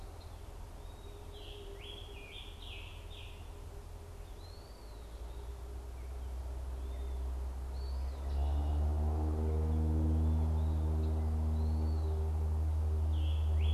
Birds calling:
Scarlet Tanager (Piranga olivacea), Eastern Wood-Pewee (Contopus virens)

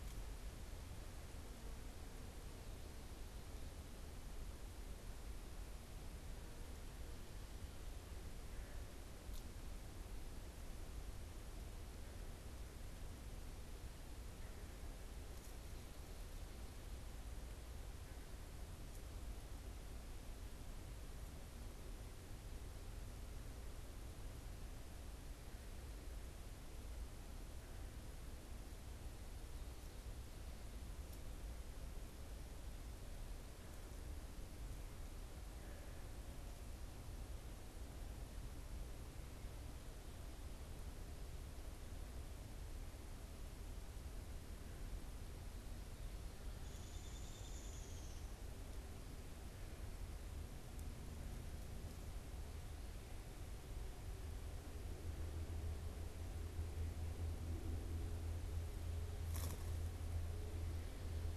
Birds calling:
Downy Woodpecker (Dryobates pubescens)

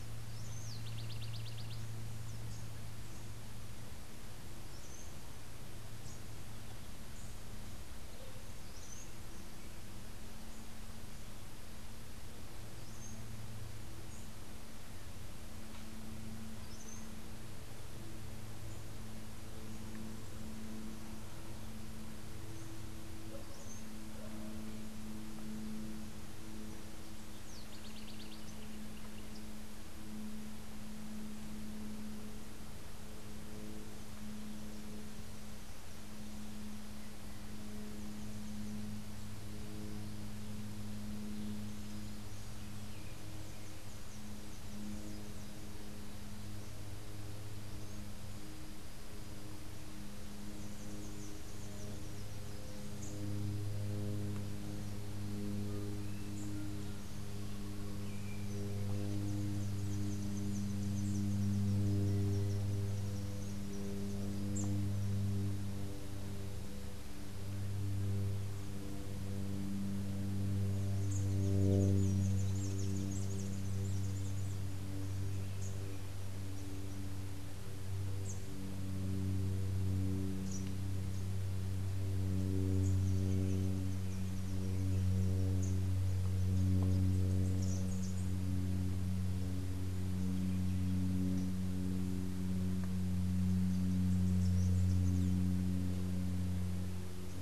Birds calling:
Rufous-capped Warbler (Basileuterus rufifrons), House Wren (Troglodytes aedon)

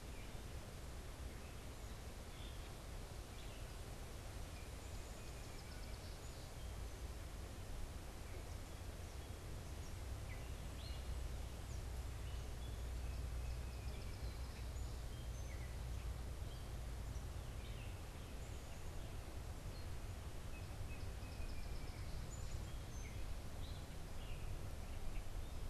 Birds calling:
Gray Catbird (Dumetella carolinensis), Song Sparrow (Melospiza melodia)

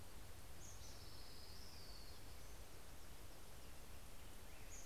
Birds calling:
Orange-crowned Warbler (Leiothlypis celata), Black-headed Grosbeak (Pheucticus melanocephalus), Chestnut-backed Chickadee (Poecile rufescens)

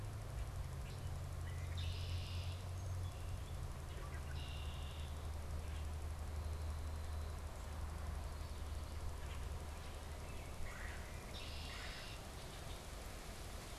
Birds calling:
Red-bellied Woodpecker (Melanerpes carolinus), Red-winged Blackbird (Agelaius phoeniceus)

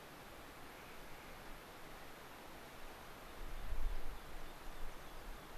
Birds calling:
Clark's Nutcracker (Nucifraga columbiana), American Pipit (Anthus rubescens)

